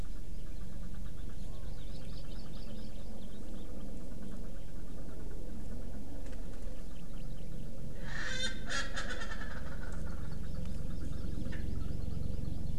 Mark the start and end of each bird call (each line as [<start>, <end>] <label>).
[1.90, 3.10] Hawaii Amakihi (Chlorodrepanis virens)
[6.90, 7.70] Hawaii Amakihi (Chlorodrepanis virens)
[7.90, 10.60] Erckel's Francolin (Pternistis erckelii)
[10.20, 12.70] Hawaii Amakihi (Chlorodrepanis virens)
[11.50, 11.60] Erckel's Francolin (Pternistis erckelii)